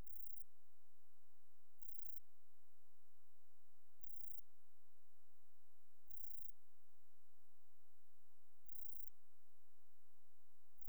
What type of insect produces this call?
orthopteran